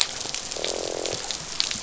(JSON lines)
{"label": "biophony, croak", "recorder": "SoundTrap 500"}